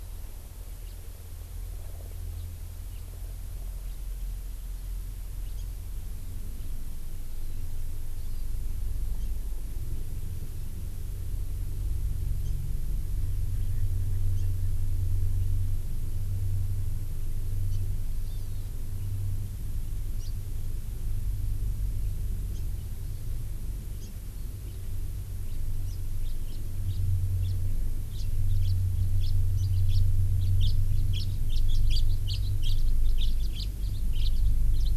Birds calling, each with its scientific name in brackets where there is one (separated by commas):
House Finch (Haemorhous mexicanus), Hawaii Amakihi (Chlorodrepanis virens)